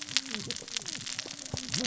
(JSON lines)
{"label": "biophony, cascading saw", "recorder": "SoundTrap 600 or HydroMoth"}